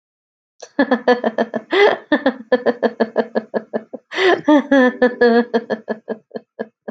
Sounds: Laughter